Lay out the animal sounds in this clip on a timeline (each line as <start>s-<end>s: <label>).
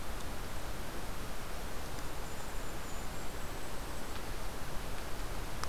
1.6s-4.3s: Golden-crowned Kinglet (Regulus satrapa)